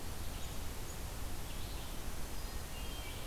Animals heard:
Hermit Thrush (Catharus guttatus), Red-eyed Vireo (Vireo olivaceus)

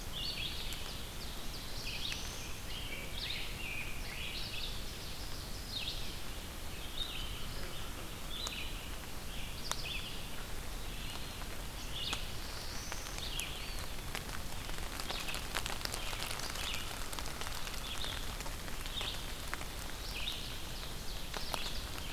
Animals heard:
Black-throated Blue Warbler (Setophaga caerulescens), American Robin (Turdus migratorius), Eastern Wood-Pewee (Contopus virens), Ovenbird (Seiurus aurocapilla), Red-eyed Vireo (Vireo olivaceus)

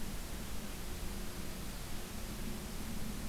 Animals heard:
Dark-eyed Junco (Junco hyemalis)

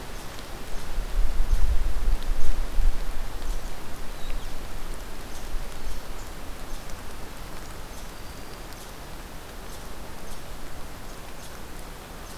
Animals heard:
Red Squirrel (Tamiasciurus hudsonicus), Black-throated Green Warbler (Setophaga virens)

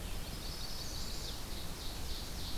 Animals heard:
Chestnut-sided Warbler (Setophaga pensylvanica), Ovenbird (Seiurus aurocapilla)

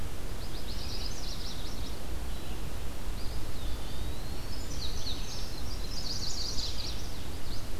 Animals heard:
Indigo Bunting (Passerina cyanea), Chestnut-sided Warbler (Setophaga pensylvanica), Eastern Wood-Pewee (Contopus virens)

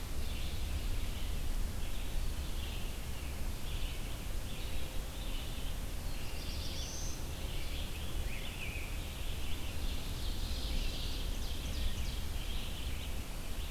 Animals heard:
Rose-breasted Grosbeak (Pheucticus ludovicianus), Ovenbird (Seiurus aurocapilla), Red-eyed Vireo (Vireo olivaceus), Black-throated Blue Warbler (Setophaga caerulescens)

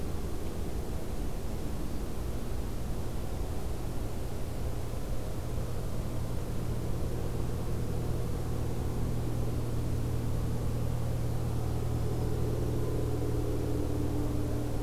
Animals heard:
Black-throated Green Warbler (Setophaga virens)

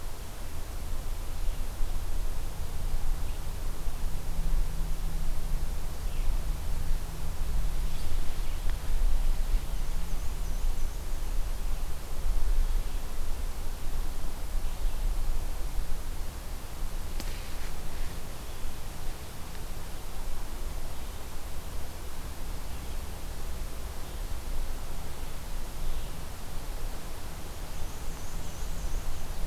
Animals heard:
Black-and-white Warbler (Mniotilta varia), Red-eyed Vireo (Vireo olivaceus)

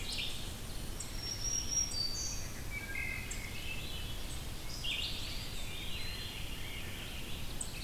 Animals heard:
Eastern Wood-Pewee (Contopus virens), Swainson's Thrush (Catharus ustulatus), Veery (Catharus fuscescens), Ovenbird (Seiurus aurocapilla), Wood Thrush (Hylocichla mustelina), Red-eyed Vireo (Vireo olivaceus), Black-throated Green Warbler (Setophaga virens)

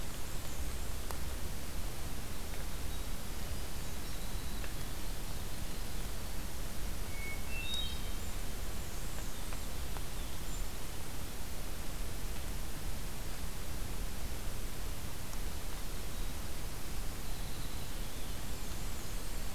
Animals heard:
Hermit Thrush (Catharus guttatus), Winter Wren (Troglodytes hiemalis), Golden-crowned Kinglet (Regulus satrapa), Black-and-white Warbler (Mniotilta varia)

